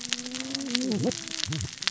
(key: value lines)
label: biophony, cascading saw
recorder: SoundTrap 600 or HydroMoth